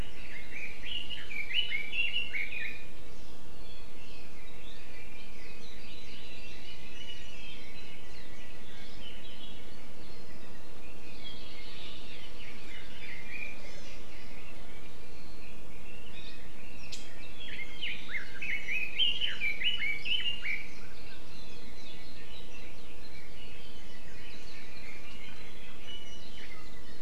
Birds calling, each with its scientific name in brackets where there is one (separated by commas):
Hawaii Amakihi (Chlorodrepanis virens), Red-billed Leiothrix (Leiothrix lutea), Iiwi (Drepanis coccinea), Hawaii Creeper (Loxops mana)